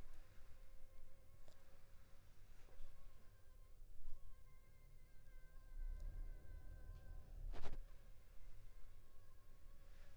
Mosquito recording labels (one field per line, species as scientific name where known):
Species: Anopheles funestus s.s.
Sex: female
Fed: unfed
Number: one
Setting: cup